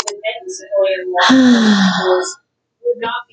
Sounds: Sigh